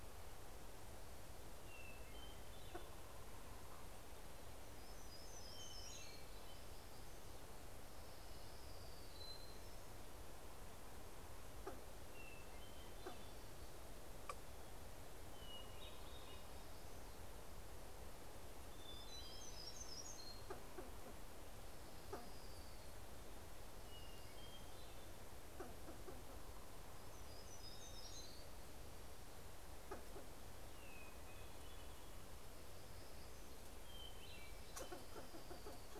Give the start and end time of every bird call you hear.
[0.00, 3.83] Hermit Thrush (Catharus guttatus)
[4.23, 6.53] Hermit Warbler (Setophaga occidentalis)
[4.63, 7.23] Hermit Thrush (Catharus guttatus)
[7.73, 9.43] Orange-crowned Warbler (Leiothlypis celata)
[11.43, 20.23] Hermit Thrush (Catharus guttatus)
[18.43, 20.73] Hermit Warbler (Setophaga occidentalis)
[21.23, 23.13] Orange-crowned Warbler (Leiothlypis celata)
[23.73, 25.63] Hermit Thrush (Catharus guttatus)
[26.23, 28.83] Hermit Warbler (Setophaga occidentalis)
[28.33, 35.23] Hermit Thrush (Catharus guttatus)
[34.13, 35.93] Orange-crowned Warbler (Leiothlypis celata)

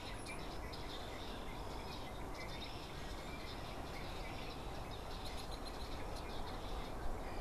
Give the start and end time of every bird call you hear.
[0.00, 0.50] unidentified bird
[0.00, 7.40] Red-winged Blackbird (Agelaius phoeniceus)

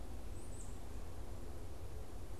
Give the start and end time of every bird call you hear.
[0.00, 2.40] Tufted Titmouse (Baeolophus bicolor)

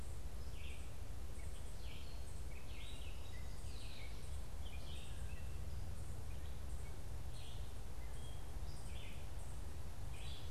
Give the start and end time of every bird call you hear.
[0.00, 10.50] Gray Catbird (Dumetella carolinensis)
[0.00, 10.50] Red-eyed Vireo (Vireo olivaceus)
[10.00, 10.50] Common Yellowthroat (Geothlypis trichas)

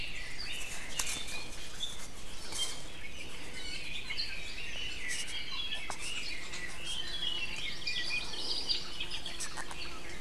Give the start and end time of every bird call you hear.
[0.00, 1.68] Red-billed Leiothrix (Leiothrix lutea)
[3.38, 3.98] Iiwi (Drepanis coccinea)
[3.48, 6.38] Red-billed Leiothrix (Leiothrix lutea)
[7.48, 9.08] Hawaii Amakihi (Chlorodrepanis virens)

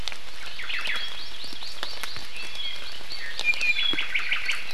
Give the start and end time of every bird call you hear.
[0.42, 1.02] Omao (Myadestes obscurus)
[0.62, 2.32] Hawaii Amakihi (Chlorodrepanis virens)
[2.32, 4.12] Apapane (Himatione sanguinea)
[3.32, 3.82] Iiwi (Drepanis coccinea)

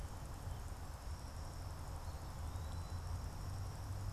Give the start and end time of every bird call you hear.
[1.70, 3.40] Eastern Wood-Pewee (Contopus virens)

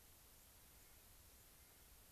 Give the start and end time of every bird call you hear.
[0.00, 1.60] White-crowned Sparrow (Zonotrichia leucophrys)
[0.70, 1.10] Clark's Nutcracker (Nucifraga columbiana)
[1.50, 2.00] Clark's Nutcracker (Nucifraga columbiana)

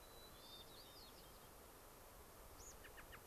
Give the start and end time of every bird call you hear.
[0.00, 1.50] White-crowned Sparrow (Zonotrichia leucophrys)
[0.30, 1.40] Hermit Thrush (Catharus guttatus)
[2.50, 3.20] American Robin (Turdus migratorius)

